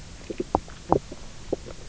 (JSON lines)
{"label": "biophony, knock croak", "recorder": "SoundTrap 300"}